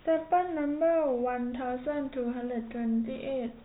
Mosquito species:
no mosquito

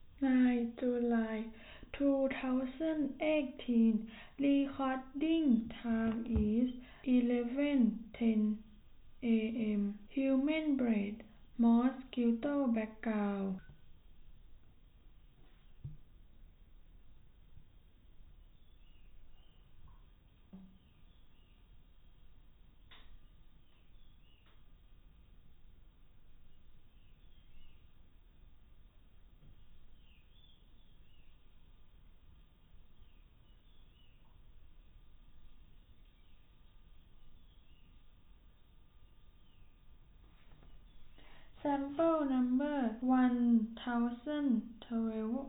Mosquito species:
no mosquito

